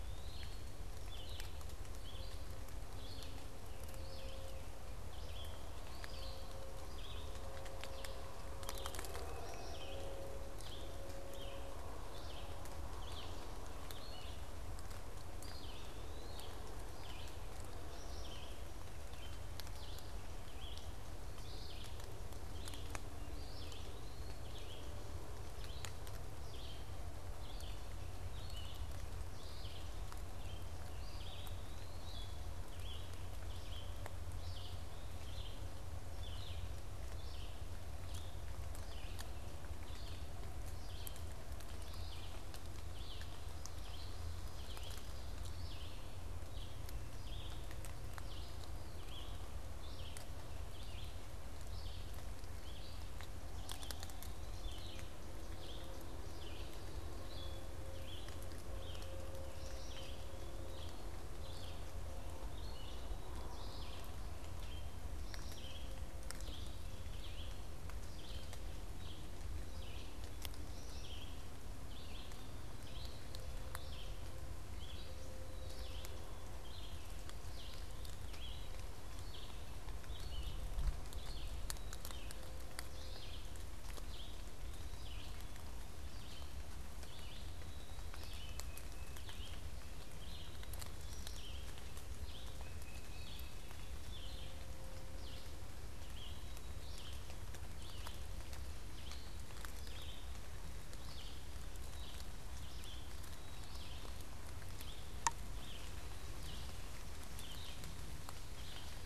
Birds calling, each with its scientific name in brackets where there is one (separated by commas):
Black-capped Chickadee (Poecile atricapillus), Eastern Wood-Pewee (Contopus virens), Tufted Titmouse (Baeolophus bicolor), Red-eyed Vireo (Vireo olivaceus), unidentified bird